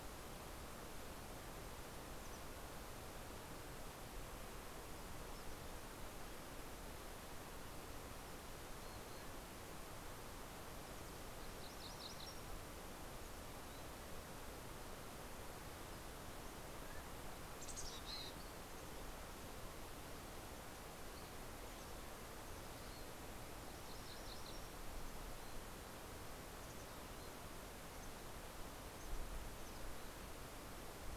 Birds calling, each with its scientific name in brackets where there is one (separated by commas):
Mountain Quail (Oreortyx pictus), Mountain Chickadee (Poecile gambeli), MacGillivray's Warbler (Geothlypis tolmiei)